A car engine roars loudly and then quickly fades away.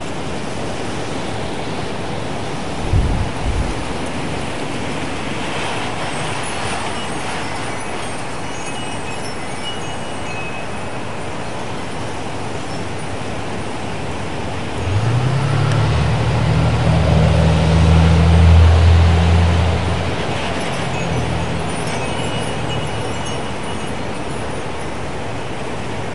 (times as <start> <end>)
14.7 20.8